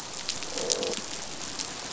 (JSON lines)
{"label": "biophony", "recorder": "SoundTrap 500"}